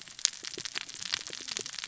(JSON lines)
{"label": "biophony, cascading saw", "recorder": "SoundTrap 600 or HydroMoth"}